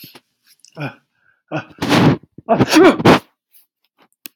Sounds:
Sneeze